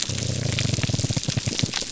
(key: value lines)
label: biophony, grouper groan
recorder: SoundTrap 300